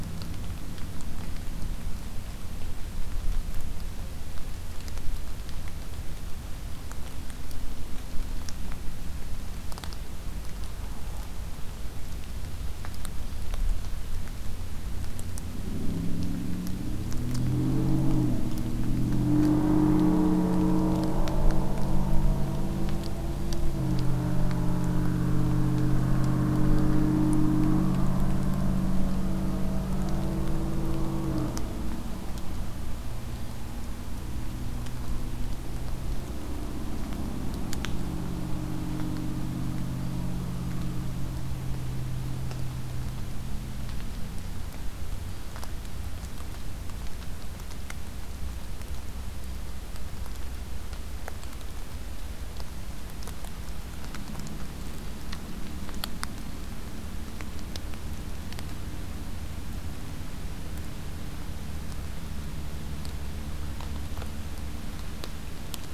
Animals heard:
forest ambience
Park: Acadia National Park